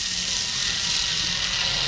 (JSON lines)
{"label": "anthrophony, boat engine", "recorder": "SoundTrap 500"}